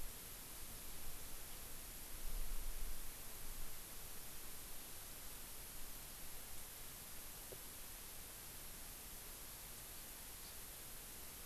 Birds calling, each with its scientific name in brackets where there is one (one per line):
Hawaii Amakihi (Chlorodrepanis virens)